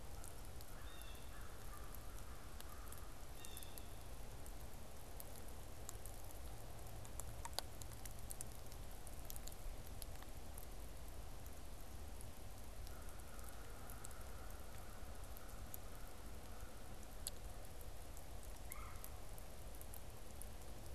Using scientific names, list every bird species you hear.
Corvus brachyrhynchos, Cyanocitta cristata, Melanerpes carolinus